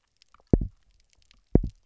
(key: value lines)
label: biophony, double pulse
recorder: SoundTrap 300